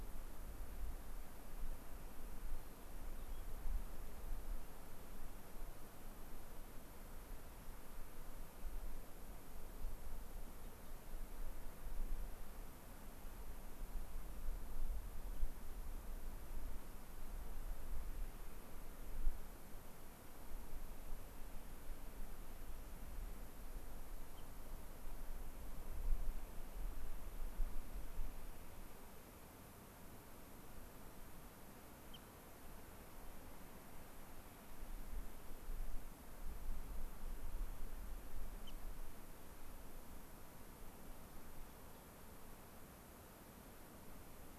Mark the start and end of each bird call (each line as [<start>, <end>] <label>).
[2.46, 3.66] White-crowned Sparrow (Zonotrichia leucophrys)
[10.56, 10.96] unidentified bird